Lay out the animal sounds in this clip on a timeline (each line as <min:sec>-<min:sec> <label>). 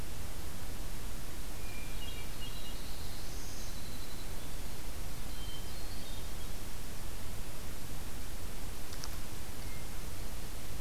0:01.6-0:02.8 Hermit Thrush (Catharus guttatus)
0:02.2-0:03.9 Black-throated Blue Warbler (Setophaga caerulescens)
0:03.4-0:04.6 Winter Wren (Troglodytes hiemalis)
0:05.0-0:06.5 Hermit Thrush (Catharus guttatus)